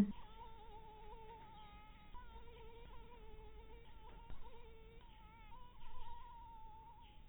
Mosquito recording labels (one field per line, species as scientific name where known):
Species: mosquito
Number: one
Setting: cup